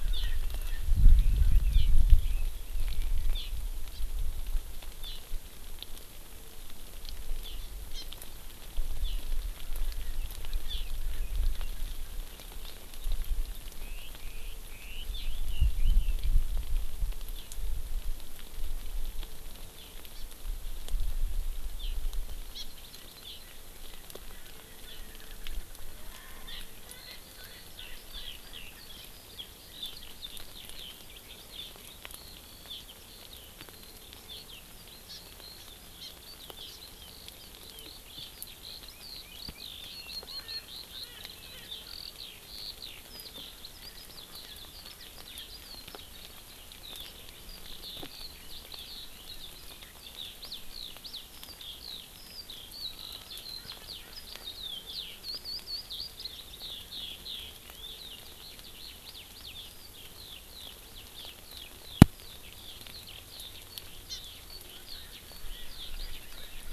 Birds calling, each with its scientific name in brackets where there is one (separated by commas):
Eurasian Skylark (Alauda arvensis), Red-billed Leiothrix (Leiothrix lutea), Hawaii Amakihi (Chlorodrepanis virens), Erckel's Francolin (Pternistis erckelii)